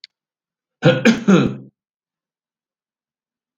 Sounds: Cough